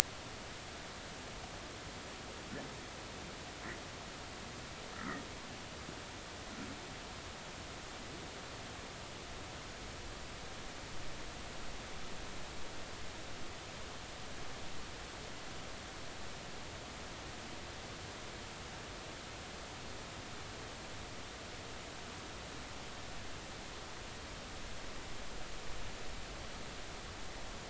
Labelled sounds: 4.9	5.2	humpback whale, 1.2 to 1.5 kHz

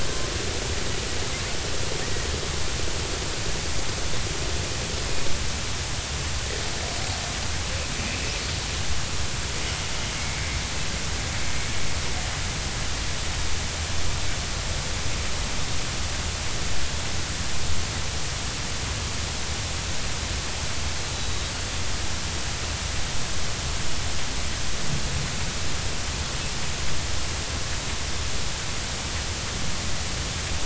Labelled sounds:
8.0	8.3	killer whale, Bigg's (transient), 2.4 to 2.7 kHz
21.1	21.4	killer whale, Bigg's (transient), 3.8 to 4.1 kHz

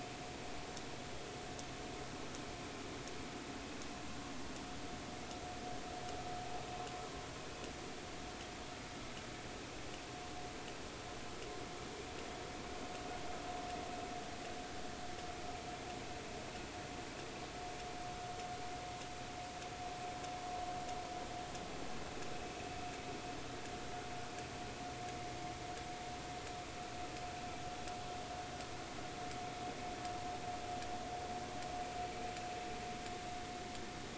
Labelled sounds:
22.3	22.6	vessel noise, 2.5 to 2.7 kHz

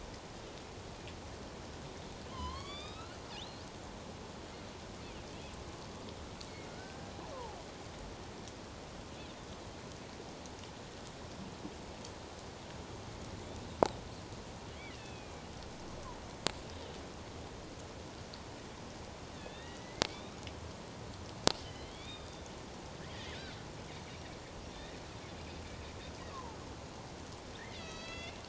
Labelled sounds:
2.3	3.7	killer whale, northern resident, A clan, AB subclan, 0.94 to 5.1 kHz
6.7	7.6	killer whale, northern resident, A clan, AB subclan, 0.78 to 1.7 kHz
14.9	15.4	killer whale, northern resident, A clan, AB subclan, 2.2 to 3.6 kHz
19.4	20.4	killer whale, northern resident, A clan, AB subclan, 1.7 to 4.0 kHz
21.6	22.5	killer whale, northern resident, A clan, AB subclan, 1.9 to 5.0 kHz
26.3	26.6	killer whale, northern resident, A clan, AB subclan, 0.84 to 1.2 kHz
27.6	28.4	killer whale, northern resident, A clan, AB subclan, 1.2 to 6.8 kHz

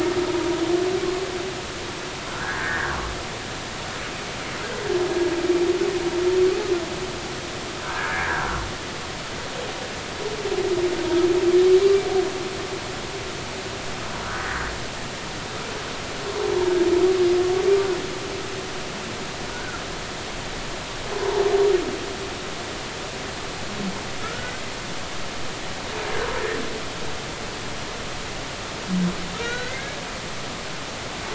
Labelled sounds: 2.3	3.0	humpback whale, 1.3 to 1.9 kHz
7.8	8.5	humpback whale, 1.4 to 1.9 kHz
19.5	19.8	humpback whale, 1.3 to 1.6 kHz
24.2	24.5	humpback whale, 1.2 to 1.5 kHz
29.4	30.0	humpback whale, 1.4 to 4.1 kHz

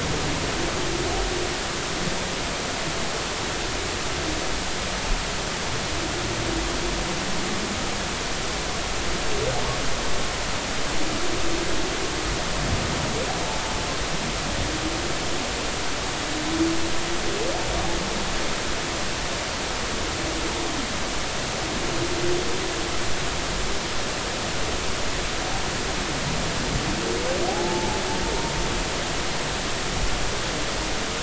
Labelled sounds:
27.5	28.0	humpback whale, 0.80 to 0.93 kHz

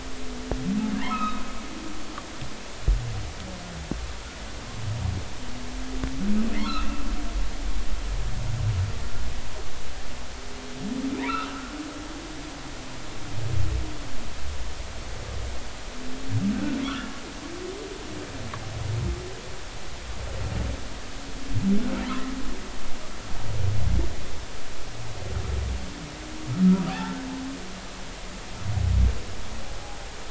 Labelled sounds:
0.9	1.4	humpback whale, 0.86 to 3.9 kHz
6.7	7.1	humpback whale, 2.5 to 2.8 kHz
11.2	11.7	humpback whale, 1.1 to 3.7 kHz
22.0	22.3	humpback whale, 0.90 to 1.4 kHz
26.9	27.2	humpback whale, 0.80 to 0.93 kHz

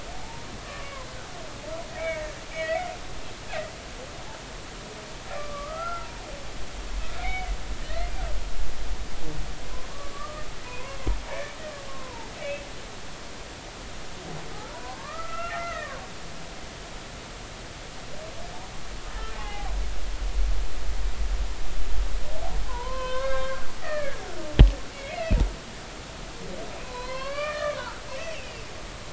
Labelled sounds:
0.1	1.1	humpback whale, 0.83 to 1.2 kHz
2.0	2.9	humpback whale, 1.7 to 2.7 kHz
5.4	6.1	humpback whale, 1.1 to 1.4 kHz
7.2	7.5	humpback whale, 2.0 to 2.3 kHz
7.8	8.1	humpback whale, 1.8 to 2.1 kHz
10.1	11.6	humpback whale, 1.1 to 2.4 kHz
11.9	12.3	humpback whale, 0.80 to 1.1 kHz
14.7	16.0	humpback whale, 0.93 to 2.8 kHz
19.1	19.7	humpback whale, 0.80 to 2.1 kHz
22.7	24.2	humpback whale, 0.90 to 3.8 kHz
24.9	25.4	humpback whale, 1.9 to 2.9 kHz
26.8	28.6	humpback whale, 0.93 to 4.8 kHz

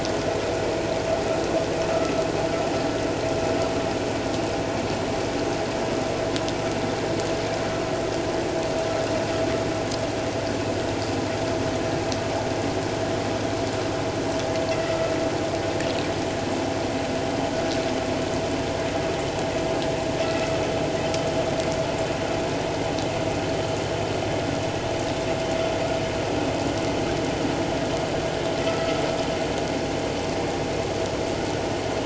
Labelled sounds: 28.7	29.0	vessel noise, 1.2 to 1.4 kHz

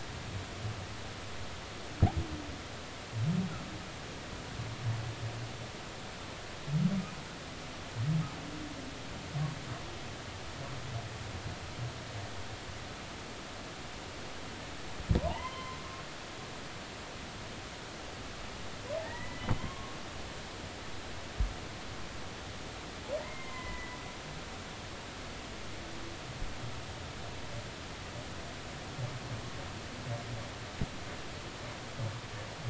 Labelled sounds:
15.2	15.8	humpback whale, 0.80 to 3.2 kHz
19.0	20.0	humpback whale, 0.80 to 3.3 kHz
23.2	24.0	humpback whale, 0.96 to 2.2 kHz

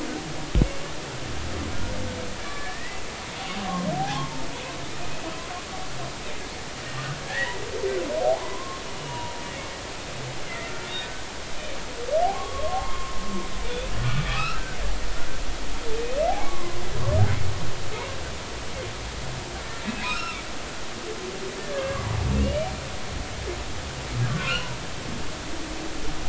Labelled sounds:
2.5	3.0	humpback whale, 1.7 to 2.1 kHz
4.0	4.3	humpback whale, 0.80 to 0.93 kHz
7.2	7.6	humpback whale, 1.6 to 2.1 kHz
8.4	9.4	humpback whale, 0.90 to 2.9 kHz
10.5	11.2	humpback whale, 1.3 to 2.2 kHz
12.2	13.1	humpback whale, 0.80 to 1.3 kHz
14.3	14.8	humpback whale, 1.1 to 2.8 kHz
16.4	16.8	humpback whale, 0.99 to 2.3 kHz
19.9	20.4	humpback whale, 1.2 to 5.6 kHz
21.6	22.1	humpback whale, 0.99 to 1.8 kHz
22.4	22.7	humpback whale, 2.7 to 3.0 kHz
24.3	24.7	humpback whale, 1.0 to 3.0 kHz

